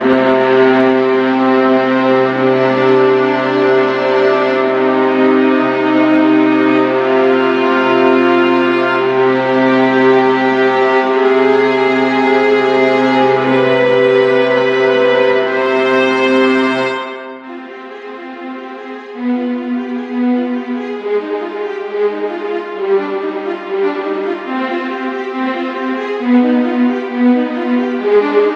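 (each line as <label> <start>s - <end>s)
A string orchestra plays a melody that rises in pitch. 0.0s - 17.3s
A string orchestra plays a mysterious melody. 17.3s - 28.6s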